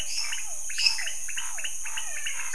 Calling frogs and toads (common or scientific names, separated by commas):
lesser tree frog, pointedbelly frog, Physalaemus cuvieri, Scinax fuscovarius, menwig frog